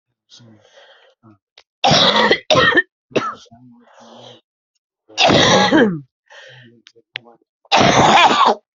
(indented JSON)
{
  "expert_labels": [
    {
      "quality": "poor",
      "cough_type": "dry",
      "dyspnea": false,
      "wheezing": false,
      "stridor": false,
      "choking": false,
      "congestion": false,
      "nothing": true,
      "diagnosis": "COVID-19",
      "severity": "mild"
    }
  ],
  "age": 42,
  "gender": "female",
  "respiratory_condition": true,
  "fever_muscle_pain": true,
  "status": "symptomatic"
}